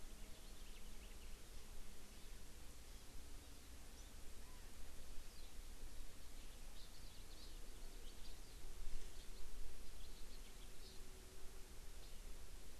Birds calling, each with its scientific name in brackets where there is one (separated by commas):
Chinese Hwamei (Garrulax canorus), Hawaii Amakihi (Chlorodrepanis virens), House Finch (Haemorhous mexicanus)